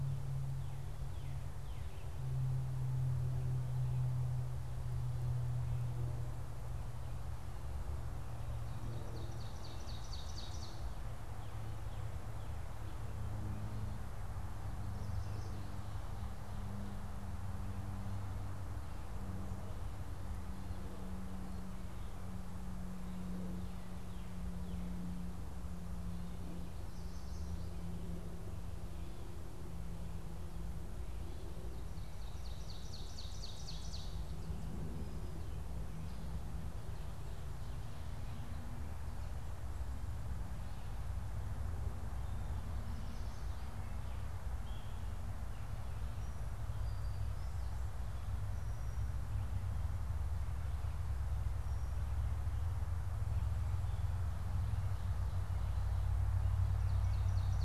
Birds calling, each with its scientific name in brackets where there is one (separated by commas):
Brown-headed Cowbird (Molothrus ater), Yellow Warbler (Setophaga petechia), Northern Cardinal (Cardinalis cardinalis), Ovenbird (Seiurus aurocapilla)